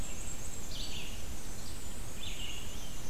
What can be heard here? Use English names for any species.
Black-and-white Warbler, Red-eyed Vireo